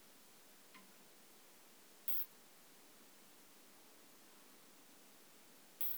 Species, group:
Isophya modestior, Orthoptera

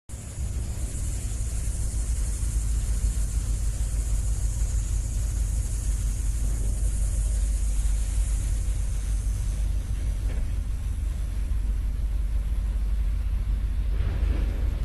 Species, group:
Neotibicen linnei, Cicadidae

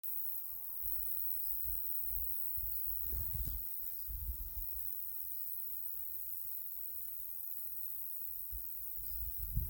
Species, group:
Roeseliana roeselii, Orthoptera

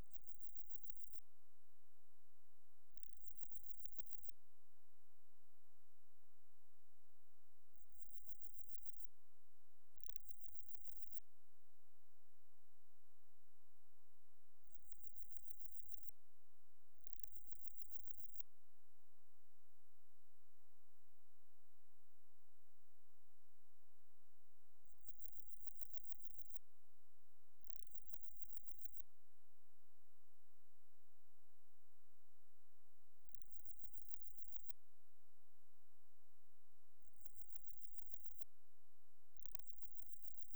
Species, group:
Parnassiana gionica, Orthoptera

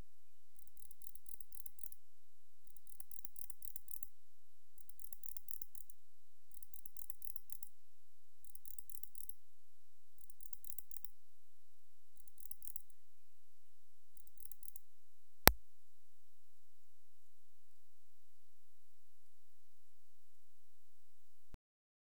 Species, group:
Barbitistes yersini, Orthoptera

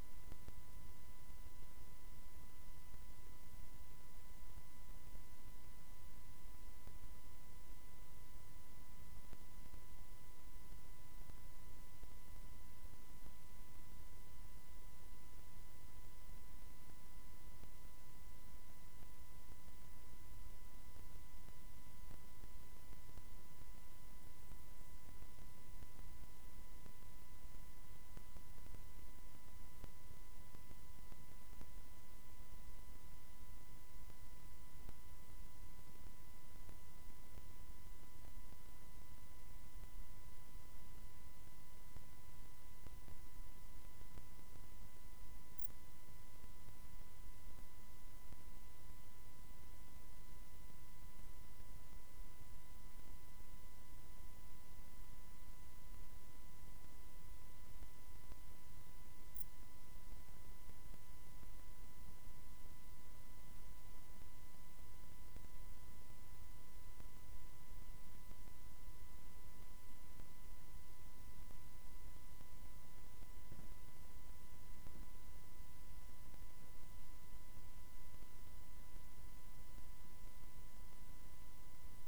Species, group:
Pholidoptera griseoaptera, Orthoptera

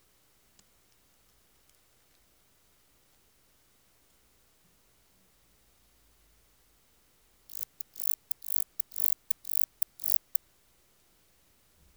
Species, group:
Barbitistes ocskayi, Orthoptera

